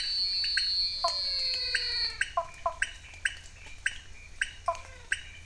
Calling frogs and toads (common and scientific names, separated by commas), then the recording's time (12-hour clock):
Elachistocleis matogrosso, pointedbelly frog (Leptodactylus podicipinus), menwig frog (Physalaemus albonotatus), Cuyaba dwarf frog (Physalaemus nattereri)
7:00pm